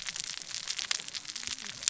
{"label": "biophony, cascading saw", "recorder": "SoundTrap 600 or HydroMoth"}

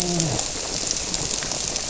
{"label": "biophony, grouper", "recorder": "SoundTrap 300"}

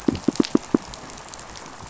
{"label": "biophony, pulse", "recorder": "SoundTrap 500"}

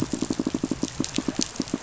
{"label": "biophony, pulse", "recorder": "SoundTrap 500"}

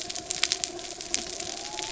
{"label": "anthrophony, mechanical", "recorder": "SoundTrap 300"}
{"label": "biophony", "recorder": "SoundTrap 300"}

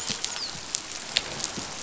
{"label": "biophony, dolphin", "recorder": "SoundTrap 500"}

